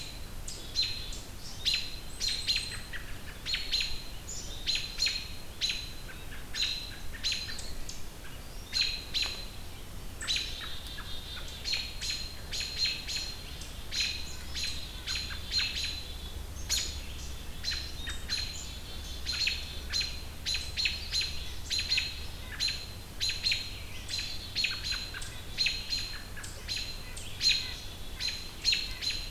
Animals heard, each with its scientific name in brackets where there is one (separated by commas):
American Robin (Turdus migratorius), Black-capped Chickadee (Poecile atricapillus)